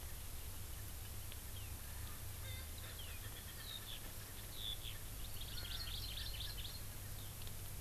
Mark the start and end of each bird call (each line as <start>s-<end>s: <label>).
1.8s-4.3s: Erckel's Francolin (Pternistis erckelii)
3.6s-4.0s: Eurasian Skylark (Alauda arvensis)
4.5s-4.9s: Eurasian Skylark (Alauda arvensis)
5.2s-6.9s: Hawaii Amakihi (Chlorodrepanis virens)
5.5s-7.1s: Erckel's Francolin (Pternistis erckelii)